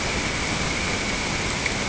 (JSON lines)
{"label": "ambient", "recorder": "HydroMoth"}